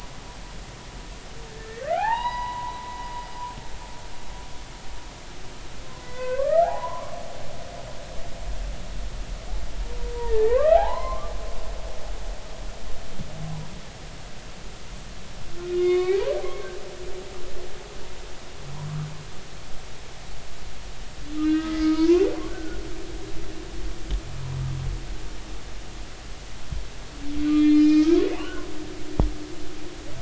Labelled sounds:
1.5	3.0	humpback whale, 0.80 to 5.0 kHz
6.1	7.4	humpback whale, 0.80 to 2.6 kHz
10.1	11.3	humpback whale, 0.80 to 2.2 kHz
15.7	16.2	humpback whale, 1.0 to 4.5 kHz
21.4	22.8	humpback whale, 0.90 to 4.3 kHz
27.5	28.7	humpback whale, 0.83 to 5.6 kHz

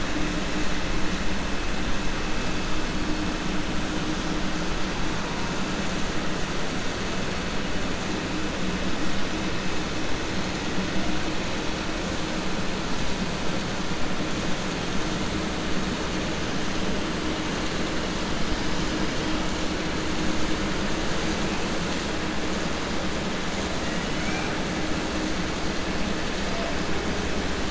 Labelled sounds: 24.1	24.5	killer whale, 0.74 to 3.0 kHz

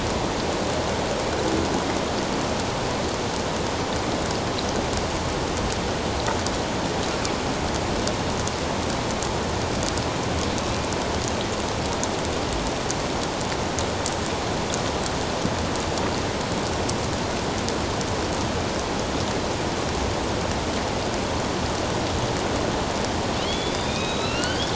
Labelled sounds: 23.4	24.7	killer whale, northern resident, A clan, AB subclan, 1.2 to 4.8 kHz

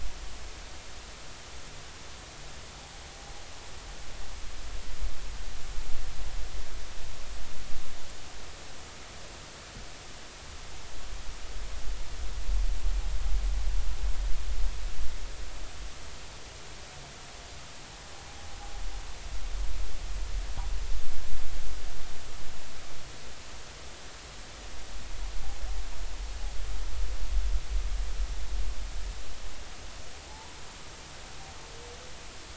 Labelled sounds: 30.3	30.6	humpback whale, 0.80 to 1.0 kHz

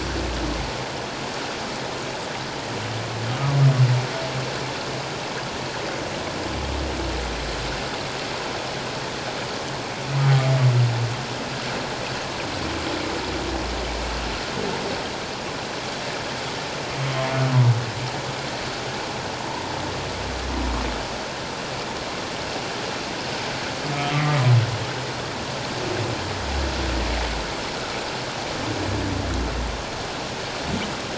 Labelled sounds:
24.1	24.4	humpback whale, 1.9 to 2.1 kHz

